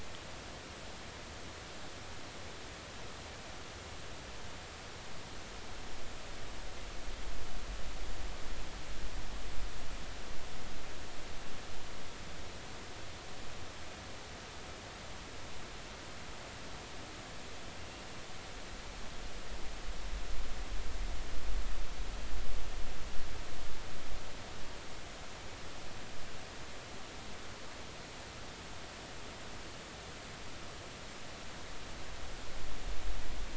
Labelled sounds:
17.8	18.1	killer whale, offshore, 2.7 to 2.8 kHz

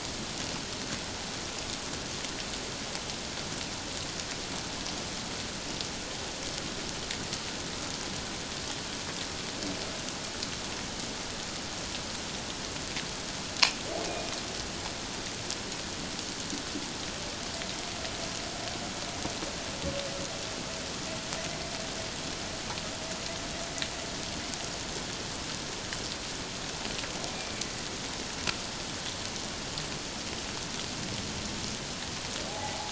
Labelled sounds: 14.0	14.3	humpback whale, 2.4 to 2.5 kHz
32.5	32.8	humpback whale, 0.78 to 1.0 kHz

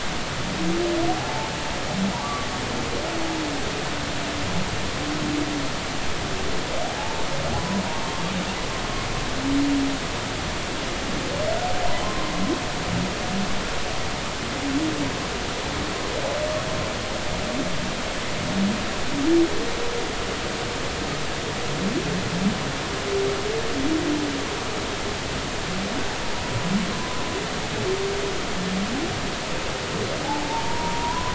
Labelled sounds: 1.1	1.5	humpback whale, 0.80 to 0.96 kHz
2.2	2.5	humpback whale, 1.1 to 1.2 kHz
7.0	7.2	humpback whale, 0.80 to 0.99 kHz
12.0	12.4	humpback whale, 0.96 to 1.1 kHz
26.9	27.2	humpback whale, 0.96 to 1.2 kHz
30.2	31.3	humpback whale, 0.80 to 1.1 kHz

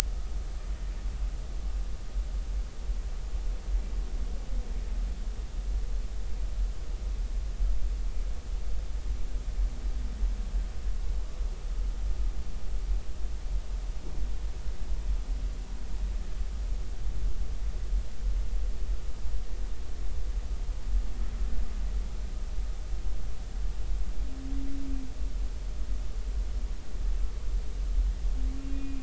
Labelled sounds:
28.7	29.0	humpback whale, 2.4 to 2.6 kHz

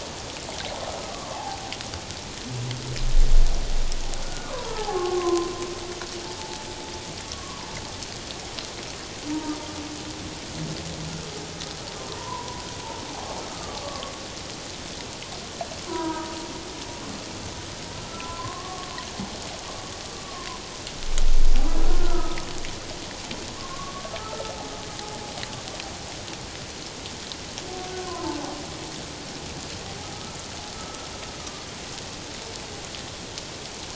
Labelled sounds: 1.1	1.6	humpback whale, 0.78 to 1.2 kHz
4.2	5.5	humpback whale, 0.78 to 1.5 kHz
6.4	7.7	humpback whale, 0.84 to 1.2 kHz
12.0	12.6	humpback whale, 0.88 to 1.1 kHz
13.5	14.1	humpback whale, 1.0 to 1.3 kHz
15.9	16.3	humpback whale, 0.88 to 1.7 kHz
18.1	18.9	humpback whale, 0.97 to 1.4 kHz
21.9	22.4	humpback whale, 1.2 to 1.5 kHz
23.6	24.5	humpback whale, 1.0 to 1.4 kHz
28.0	28.6	humpback whale, 0.78 to 1.1 kHz
30.1	31.1	humpback whale, 1.2 to 1.5 kHz
31.4	31.7	humpback whale, 1.1 to 1.2 kHz

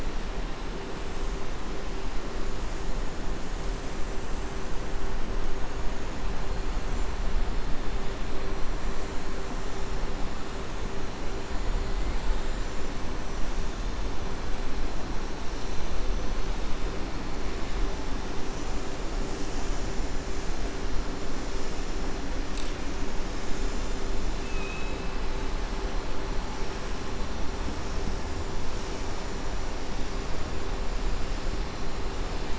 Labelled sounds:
24.4	25.0	killer whale, southern resident, 2.5 to 3.9 kHz

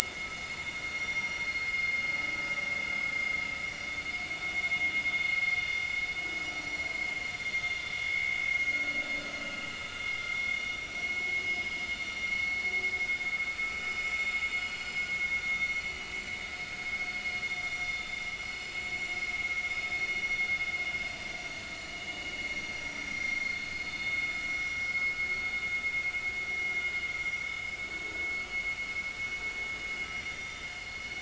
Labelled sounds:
0.1	2.3	vessel noise, 1.9 to 7.3 kHz
5.6	5.9	vessel noise, 5.8 to 5.9 kHz
8.1	8.5	vessel noise, 2.2 to 2.3 kHz
10.1	10.6	vessel noise, 2.0 to 2.2 kHz
11.0	11.7	vessel noise, 2.1 to 5.2 kHz
12.3	12.6	vessel noise, 2.1 to 2.2 kHz
13.8	14.2	vessel noise, 5.1 to 5.2 kHz
17.7	18.1	vessel noise, 3.5 to 5.8 kHz
22.0	23.5	vessel noise, 2.0 to 3.0 kHz
23.9	24.2	vessel noise, 3.6 to 3.8 kHz
27.2	27.5	vessel noise, 5.7 to 5.8 kHz
30.0	30.6	vessel noise, 3.6 to 5.8 kHz

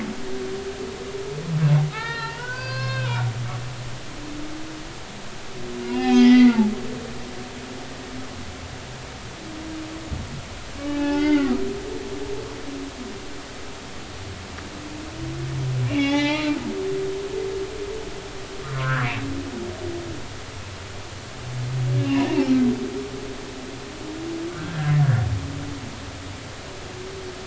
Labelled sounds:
1.9	3.3	humpback whale, 0.83 to 4.8 kHz
5.9	6.6	humpback whale, 1.7 to 5.1 kHz
10.8	11.5	humpback whale, 0.80 to 4.9 kHz
15.9	16.6	humpback whale, 0.80 to 3.9 kHz
18.7	19.1	humpback whale, 0.99 to 1.9 kHz
22.0	22.2	humpback whale, 2.5 to 2.9 kHz
24.5	24.9	humpback whale, 1.3 to 1.9 kHz

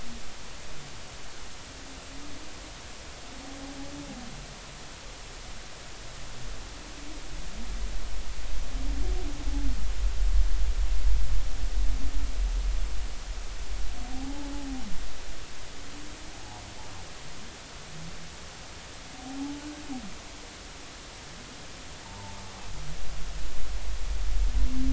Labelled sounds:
14.1	14.5	humpback whale, 0.80 to 0.93 kHz
22.0	22.4	humpback whale, 0.83 to 1.0 kHz

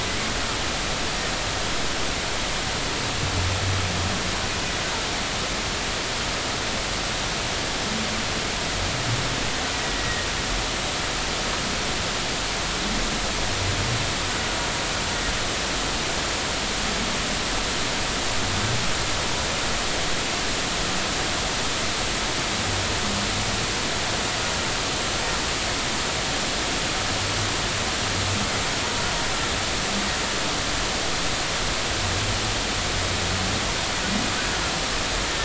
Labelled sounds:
10.0	10.3	humpback whale, 1.7 to 2.0 kHz

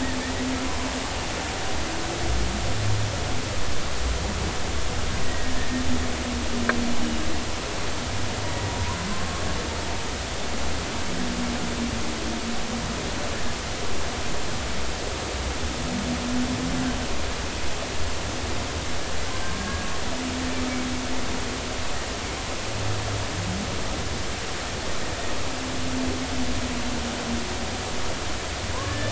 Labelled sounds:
5.2	5.5	killer whale, Bigg's (transient), 1.8 to 2.0 kHz
9.1	9.4	killer whale, Bigg's (transient), 0.99 to 1.2 kHz
19.6	19.9	killer whale, Bigg's (transient), 1.6 to 1.7 kHz
28.8	29.1	killer whale, Bigg's (transient), 1.6 to 1.8 kHz

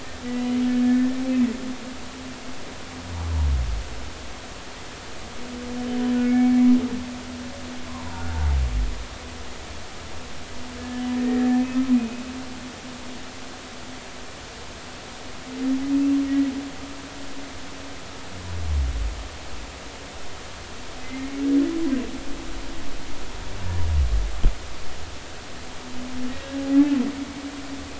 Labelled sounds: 0.8	1.1	humpback whale, 1.7 to 1.8 kHz
6.2	6.7	humpback whale, 2.1 to 2.3 kHz
11.2	12.2	humpback whale, 1.7 to 2.6 kHz
21.0	21.4	humpback whale, 2.0 to 2.3 kHz

